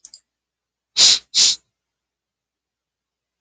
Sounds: Sniff